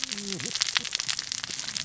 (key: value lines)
label: biophony, cascading saw
recorder: SoundTrap 600 or HydroMoth